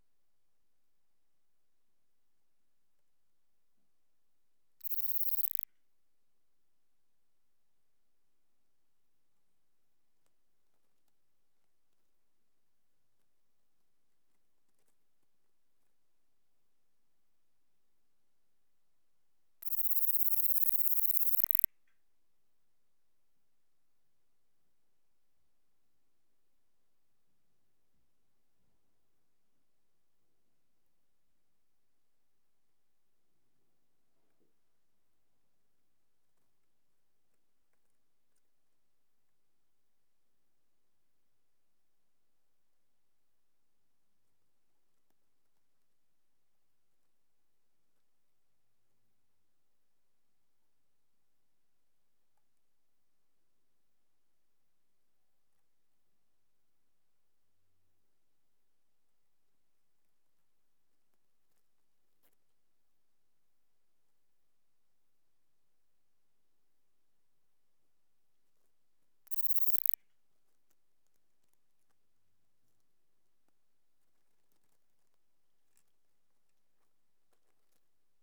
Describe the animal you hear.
Platycleis iberica, an orthopteran